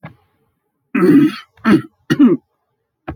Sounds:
Throat clearing